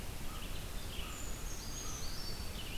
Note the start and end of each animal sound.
[0.00, 2.78] Red-eyed Vireo (Vireo olivaceus)
[0.13, 2.03] American Crow (Corvus brachyrhynchos)
[0.95, 2.47] Brown Creeper (Certhia americana)

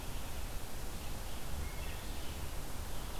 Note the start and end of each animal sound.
[0.00, 3.19] Red-eyed Vireo (Vireo olivaceus)

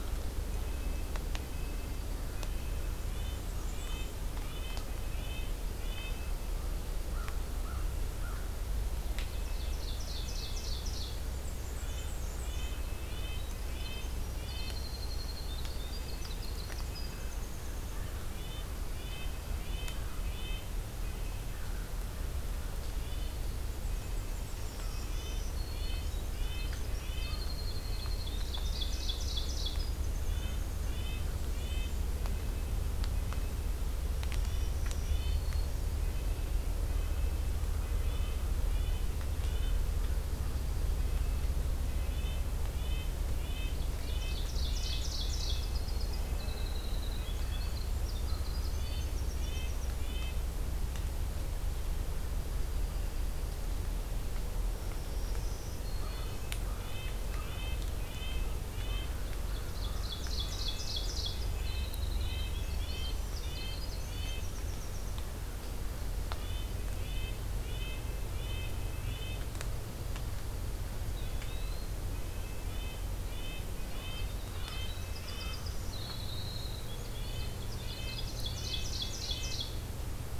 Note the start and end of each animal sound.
[0.38, 6.30] Red-breasted Nuthatch (Sitta canadensis)
[2.85, 4.20] Black-and-white Warbler (Mniotilta varia)
[6.45, 8.41] American Crow (Corvus brachyrhynchos)
[8.79, 11.27] Ovenbird (Seiurus aurocapilla)
[11.26, 12.75] Black-and-white Warbler (Mniotilta varia)
[11.63, 14.77] Red-breasted Nuthatch (Sitta canadensis)
[13.40, 17.98] Winter Wren (Troglodytes hiemalis)
[18.16, 20.81] Red-breasted Nuthatch (Sitta canadensis)
[19.41, 21.87] American Crow (Corvus brachyrhynchos)
[22.80, 27.55] Red-breasted Nuthatch (Sitta canadensis)
[23.67, 25.23] Black-and-white Warbler (Mniotilta varia)
[24.41, 26.05] Black-throated Green Warbler (Setophaga virens)
[26.14, 30.87] Winter Wren (Troglodytes hiemalis)
[28.11, 29.79] Ovenbird (Seiurus aurocapilla)
[30.22, 33.64] Red-breasted Nuthatch (Sitta canadensis)
[31.02, 32.12] Black-and-white Warbler (Mniotilta varia)
[34.18, 35.92] Black-throated Green Warbler (Setophaga virens)
[34.28, 39.88] Red-breasted Nuthatch (Sitta canadensis)
[37.53, 40.25] American Crow (Corvus brachyrhynchos)
[41.91, 45.00] Red-breasted Nuthatch (Sitta canadensis)
[43.70, 45.67] Ovenbird (Seiurus aurocapilla)
[45.38, 49.92] Winter Wren (Troglodytes hiemalis)
[48.74, 50.40] Red-breasted Nuthatch (Sitta canadensis)
[54.67, 56.59] Black-throated Green Warbler (Setophaga virens)
[55.83, 57.62] American Crow (Corvus brachyrhynchos)
[55.89, 59.28] Red-breasted Nuthatch (Sitta canadensis)
[59.11, 61.40] Ovenbird (Seiurus aurocapilla)
[59.22, 60.53] American Crow (Corvus brachyrhynchos)
[61.09, 65.24] Winter Wren (Troglodytes hiemalis)
[61.57, 64.52] Red-breasted Nuthatch (Sitta canadensis)
[62.59, 64.54] Black-throated Green Warbler (Setophaga virens)
[66.30, 69.47] Red-breasted Nuthatch (Sitta canadensis)
[71.01, 71.99] Eastern Wood-Pewee (Contopus virens)
[71.26, 75.62] Red-breasted Nuthatch (Sitta canadensis)
[73.46, 78.36] Winter Wren (Troglodytes hiemalis)
[75.81, 76.88] Eastern Wood-Pewee (Contopus virens)
[76.93, 79.64] Red-breasted Nuthatch (Sitta canadensis)
[78.03, 79.71] Ovenbird (Seiurus aurocapilla)

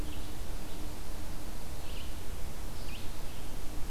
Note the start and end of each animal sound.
[0.00, 3.90] Red-eyed Vireo (Vireo olivaceus)

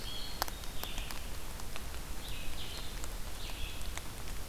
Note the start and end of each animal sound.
[0.00, 1.07] Black-capped Chickadee (Poecile atricapillus)
[0.00, 4.49] Red-eyed Vireo (Vireo olivaceus)

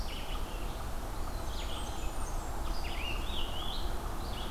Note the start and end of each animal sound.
[0.00, 4.51] Red-eyed Vireo (Vireo olivaceus)
[1.34, 2.83] Blackburnian Warbler (Setophaga fusca)
[2.59, 4.12] Scarlet Tanager (Piranga olivacea)

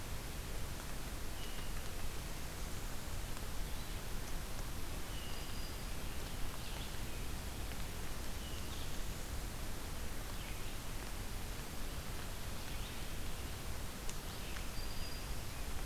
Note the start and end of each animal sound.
[0.00, 15.85] Red-eyed Vireo (Vireo olivaceus)
[4.92, 5.89] Hermit Thrush (Catharus guttatus)
[5.01, 5.97] Black-throated Green Warbler (Setophaga virens)
[8.12, 8.77] Hermit Thrush (Catharus guttatus)
[14.46, 15.63] Black-throated Green Warbler (Setophaga virens)

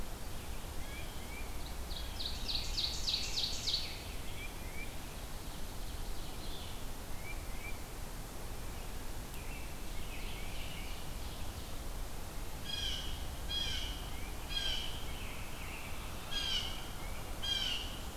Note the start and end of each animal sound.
[0.60, 1.51] Tufted Titmouse (Baeolophus bicolor)
[1.38, 4.12] Ovenbird (Seiurus aurocapilla)
[2.16, 4.18] Scarlet Tanager (Piranga olivacea)
[4.08, 4.92] Tufted Titmouse (Baeolophus bicolor)
[5.27, 6.78] Ovenbird (Seiurus aurocapilla)
[7.07, 7.87] Tufted Titmouse (Baeolophus bicolor)
[8.48, 10.98] American Robin (Turdus migratorius)
[9.66, 11.82] Ovenbird (Seiurus aurocapilla)
[12.55, 18.04] Blue Jay (Cyanocitta cristata)
[13.65, 14.34] Tufted Titmouse (Baeolophus bicolor)
[15.02, 16.12] American Robin (Turdus migratorius)
[16.44, 17.27] Tufted Titmouse (Baeolophus bicolor)

